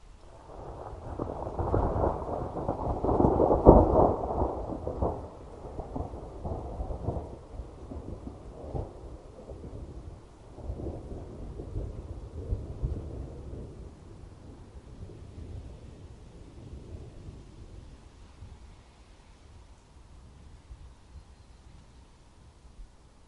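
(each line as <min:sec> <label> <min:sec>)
0:00.4 Cracking sound of distant thunder. 0:13.9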